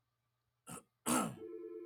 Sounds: Throat clearing